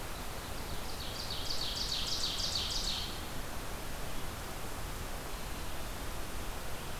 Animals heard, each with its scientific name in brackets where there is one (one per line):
Ovenbird (Seiurus aurocapilla)